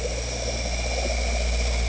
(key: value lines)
label: anthrophony, boat engine
recorder: HydroMoth